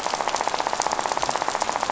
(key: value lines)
label: biophony, rattle
recorder: SoundTrap 500